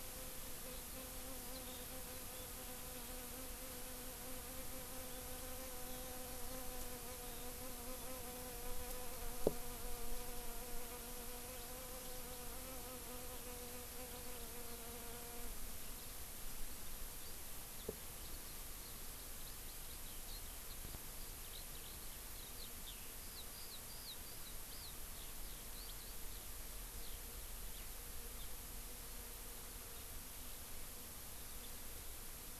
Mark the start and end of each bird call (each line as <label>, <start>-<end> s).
Eurasian Skylark (Alauda arvensis), 1.5-1.8 s
Eurasian Skylark (Alauda arvensis), 5.8-6.1 s
House Finch (Haemorhous mexicanus), 17.2-17.3 s
House Finch (Haemorhous mexicanus), 17.8-17.9 s
Eurasian Skylark (Alauda arvensis), 18.1-27.2 s
House Finch (Haemorhous mexicanus), 27.7-27.8 s
Eurasian Skylark (Alauda arvensis), 31.3-31.9 s